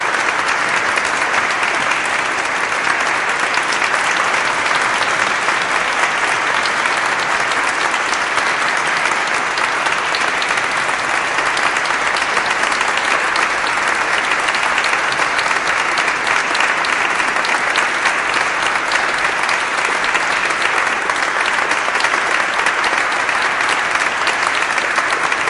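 0.0s Loud applause from a crowd. 25.5s

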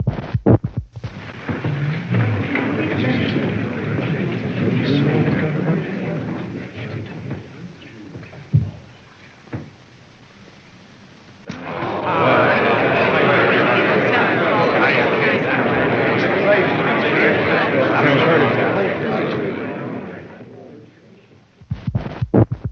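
0.0s Soft muffled sound of cloth rubbing. 1.4s
0.0s Continuous white noise in the background. 22.7s
1.5s A large crowd is whispering continuously with reverb. 10.0s
8.5s A muffled, abrupt knocking sound, like hitting wood. 9.9s
11.5s A large crowd mumbles continuously in a low pitch with an echo. 20.7s
21.6s Soft muffled sound of cloth rubbing. 22.7s

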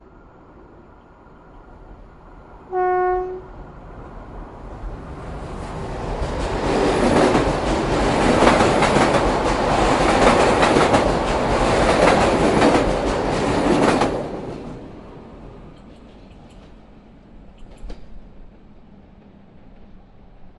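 2.6s A horn sounds. 3.5s
3.6s A train is passing by. 20.6s

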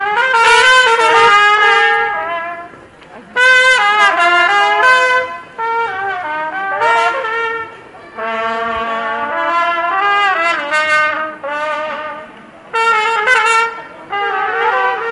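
0.0s Trumpets are playing together out of sync. 2.9s
3.6s Trumpets are playing together out of sync. 15.1s

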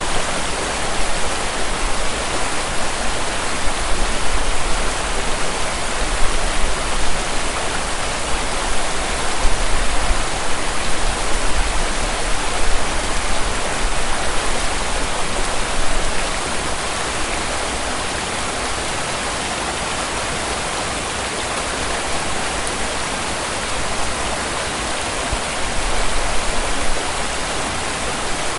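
0.0s Water rippling. 28.6s

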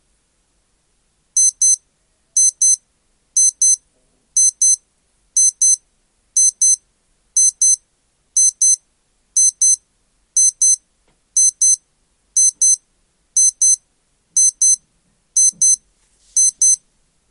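1.4s An alarm beeps twice loudly. 1.8s
2.4s An alarm beeps twice loudly. 2.8s
3.4s An alarm beeps twice loudly. 3.8s
4.4s An alarm beeps twice loudly. 4.8s
5.4s An alarm beeps twice loudly. 5.8s
6.4s An alarm beeps twice loudly. 6.8s
7.4s An alarm beeps twice loudly. 7.8s
8.4s An alarm beeps twice loudly. 8.8s
9.4s An alarm beeps twice loudly. 9.8s
10.4s An alarm beeps twice loudly. 10.8s
11.4s An alarm beeps twice loudly. 11.8s
12.4s An alarm beeps twice loudly. 12.8s
13.4s An alarm beeps twice loudly. 13.8s
14.4s An alarm beeps twice loudly. 14.8s
15.4s An alarm beeps twice loudly. 15.8s
16.4s An alarm beeps twice loudly. 16.8s

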